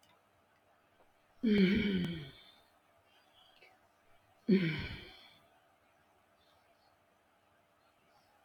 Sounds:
Sigh